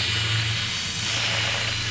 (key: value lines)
label: anthrophony, boat engine
recorder: SoundTrap 500